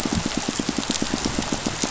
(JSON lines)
{"label": "biophony, pulse", "recorder": "SoundTrap 500"}